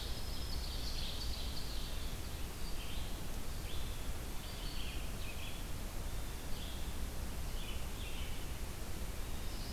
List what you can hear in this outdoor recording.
Black-throated Green Warbler, Red-eyed Vireo, Ovenbird